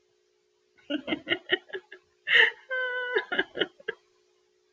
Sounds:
Laughter